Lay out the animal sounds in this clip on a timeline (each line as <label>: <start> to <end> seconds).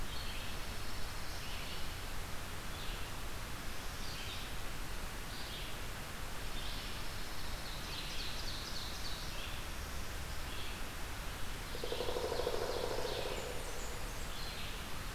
Red-eyed Vireo (Vireo olivaceus): 0.0 to 15.1 seconds
Pine Warbler (Setophaga pinus): 0.5 to 2.0 seconds
Pine Warbler (Setophaga pinus): 6.3 to 8.0 seconds
Ovenbird (Seiurus aurocapilla): 7.6 to 9.4 seconds
Ovenbird (Seiurus aurocapilla): 11.5 to 13.4 seconds
Pileated Woodpecker (Dryocopus pileatus): 11.6 to 13.6 seconds
Blackburnian Warbler (Setophaga fusca): 13.1 to 14.4 seconds